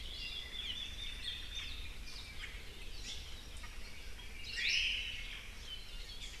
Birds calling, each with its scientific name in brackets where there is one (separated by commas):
Red-billed Leiothrix (Leiothrix lutea), Hawaii Akepa (Loxops coccineus), Omao (Myadestes obscurus)